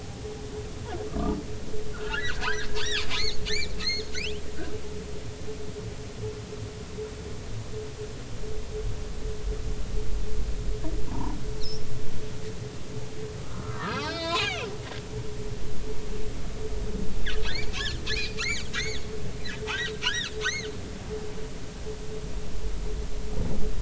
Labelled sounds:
1.9	4.1	humpback whale, 1.2 to 6.8 kHz
11.0	11.9	humpback whale, 0.80 to 5.7 kHz
13.4	14.7	humpback whale, 0.93 to 5.4 kHz
15.1	15.4	humpback whale, 3.6 to 3.9 kHz
17.4	17.7	humpback whale, 3.9 to 4.9 kHz
18.4	20.7	humpback whale, 0.80 to 6.8 kHz

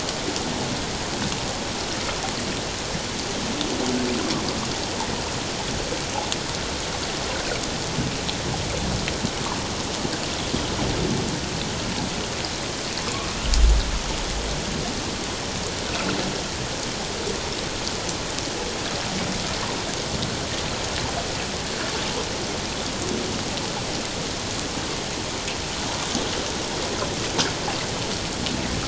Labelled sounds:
13.0	13.3	humpback whale, 1.0 to 1.2 kHz

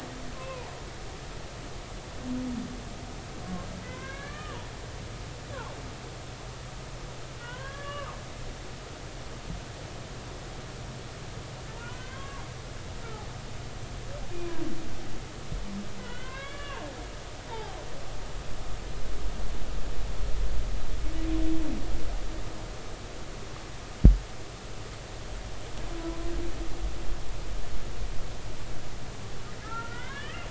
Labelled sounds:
3.8	4.7	humpback whale, 0.83 to 4.2 kHz
7.4	8.2	humpback whale, 0.93 to 3.5 kHz
11.7	12.4	humpback whale, 0.86 to 3.3 kHz
14.3	14.6	humpback whale, 2.3 to 2.5 kHz
16.0	17.8	humpback whale, 0.80 to 3.5 kHz
29.6	30.4	humpback whale, 0.93 to 2.3 kHz

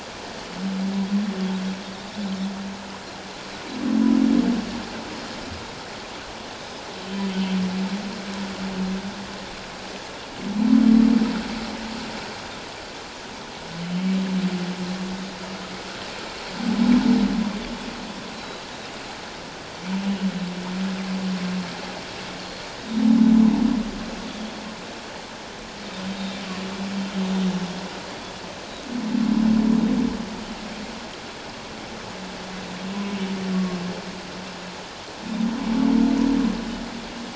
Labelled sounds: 18.4	18.6	Pacific white-sided dolphin, 3.8 to 4.2 kHz
26.1	26.4	Pacific white-sided dolphin, 3.5 to 3.9 kHz

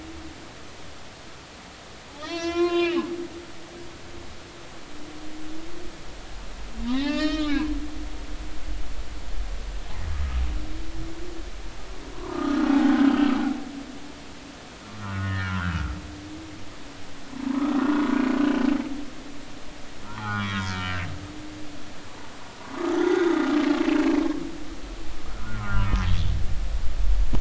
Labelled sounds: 2.1	3.1	humpback whale, 0.80 to 5.9 kHz
6.9	7.7	humpback whale, 0.93 to 5.4 kHz
12.3	13.1	humpback whale, 0.80 to 1.6 kHz
15.0	15.9	humpback whale, 1.2 to 2.0 kHz
17.8	18.1	humpback whale, 1.4 to 1.5 kHz
20.0	21.1	humpback whale, 0.80 to 3.4 kHz
23.0	23.3	humpback whale, 3.4 to 3.7 kHz
25.3	26.3	humpback whale, 1.2 to 3.7 kHz

